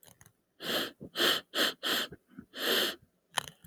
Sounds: Sniff